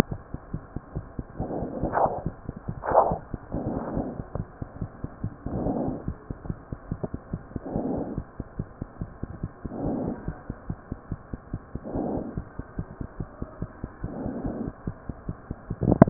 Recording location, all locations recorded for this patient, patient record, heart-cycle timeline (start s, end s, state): mitral valve (MV)
aortic valve (AV)+pulmonary valve (PV)+tricuspid valve (TV)+mitral valve (MV)
#Age: Child
#Sex: Male
#Height: 93.0 cm
#Weight: 19.2 kg
#Pregnancy status: False
#Murmur: Absent
#Murmur locations: nan
#Most audible location: nan
#Systolic murmur timing: nan
#Systolic murmur shape: nan
#Systolic murmur grading: nan
#Systolic murmur pitch: nan
#Systolic murmur quality: nan
#Diastolic murmur timing: nan
#Diastolic murmur shape: nan
#Diastolic murmur grading: nan
#Diastolic murmur pitch: nan
#Diastolic murmur quality: nan
#Outcome: Normal
#Campaign: 2015 screening campaign
0.00	10.25	unannotated
10.25	10.33	S1
10.33	10.47	systole
10.47	10.53	S2
10.53	10.66	diastole
10.66	10.76	S1
10.76	10.89	systole
10.89	10.96	S2
10.96	11.10	diastole
11.10	11.16	S1
11.16	11.31	systole
11.31	11.38	S2
11.38	11.51	diastole
11.51	11.60	S1
11.60	11.73	systole
11.73	11.80	S2
11.80	11.92	diastole
11.92	12.02	S1
12.02	12.14	systole
12.14	12.20	S2
12.20	12.34	diastole
12.34	12.42	S1
12.42	12.56	systole
12.56	12.64	S2
12.64	12.76	diastole
12.76	12.85	S1
12.85	12.98	systole
12.98	13.04	S2
13.04	13.17	diastole
13.17	13.25	S1
13.25	13.38	systole
13.38	13.47	S2
13.47	13.59	diastole
13.59	13.67	S1
13.67	13.81	systole
13.81	13.87	S2
13.87	14.01	diastole
14.01	14.09	S1
14.09	14.23	systole
14.23	14.32	S2
14.32	14.43	diastole
14.43	14.50	S1
14.50	14.66	systole
14.66	14.74	S2
14.74	14.85	diastole
14.85	14.93	S1
14.93	16.10	unannotated